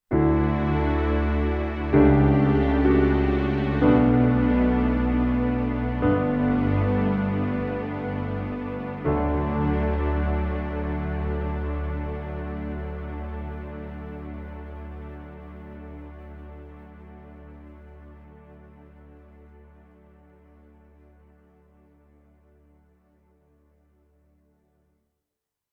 Is a piano playing?
yes